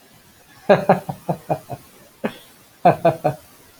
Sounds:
Laughter